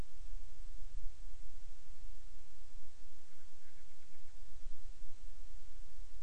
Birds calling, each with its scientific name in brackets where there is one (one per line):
Band-rumped Storm-Petrel (Hydrobates castro)